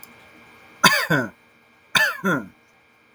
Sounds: Cough